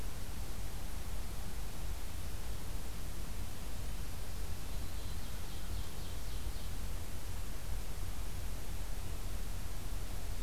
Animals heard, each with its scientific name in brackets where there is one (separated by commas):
Black-throated Green Warbler (Setophaga virens), Ovenbird (Seiurus aurocapilla)